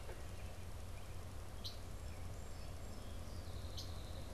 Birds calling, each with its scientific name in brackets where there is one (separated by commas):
Red-winged Blackbird (Agelaius phoeniceus)